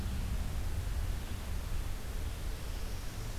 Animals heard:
forest ambience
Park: Marsh-Billings-Rockefeller National Historical Park